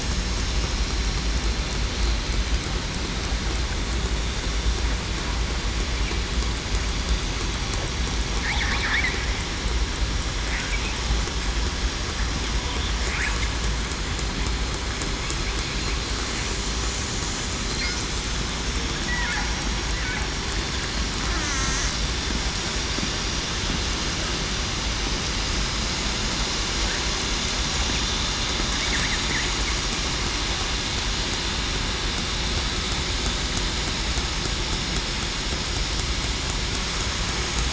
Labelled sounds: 21.4	21.8	killer whale, southern resident, 1.3 to 1.5 kHz

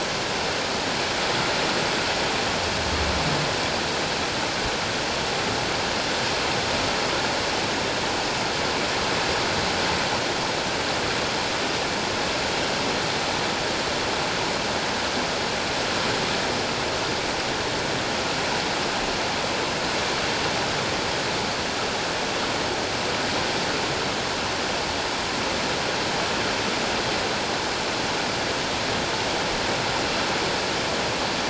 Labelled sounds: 1.4	1.6	water noise, 1.3 to 1.5 kHz

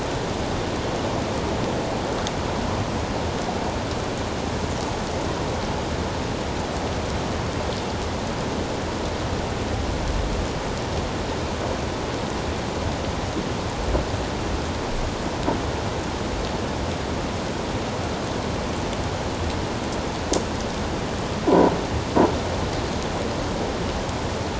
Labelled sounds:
21.5	21.7	croaking sound likely from a nearby submerged object, 0.88 to 1.0 kHz

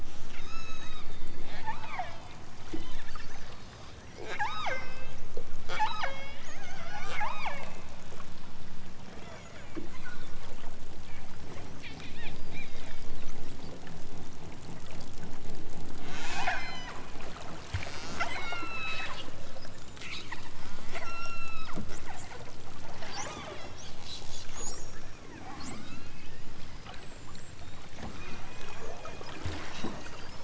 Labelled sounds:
0.0	1.1	killer whale, southern Alaska resident, 0.97 to 8.0 kHz
1.6	2.4	killer whale, southern Alaska resident, 0.55 to 5.8 kHz
2.6	3.2	killer whale, southern Alaska resident, 0.69 to 5.0 kHz
4.1	5.2	killer whale, southern Alaska resident, 0.32 to 7.6 kHz
5.6	7.7	killer whale, southern Alaska resident, 0.28 to 8.0 kHz
16.0	17.0	killer whale, southern Alaska resident, 0.41 to 8.0 kHz
17.7	19.2	killer whale, southern Alaska resident, 0.37 to 8.0 kHz
20.9	21.9	killer whale, southern Alaska resident, 1.1 to 8.0 kHz
23.1	23.8	killer whale, southern Alaska resident, 0.55 to 6.1 kHz
25.8	26.3	killer whale, southern Alaska resident, 0.92 to 4.7 kHz
28.8	29.3	killer whale, southern Alaska resident, 0.32 to 3.7 kHz

